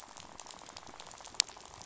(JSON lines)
{"label": "biophony, rattle", "recorder": "SoundTrap 500"}